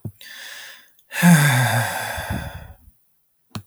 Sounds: Sigh